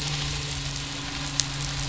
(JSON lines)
{"label": "biophony, midshipman", "recorder": "SoundTrap 500"}